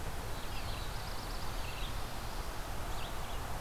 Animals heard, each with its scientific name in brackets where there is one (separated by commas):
Black-throated Blue Warbler (Setophaga caerulescens), Red-eyed Vireo (Vireo olivaceus)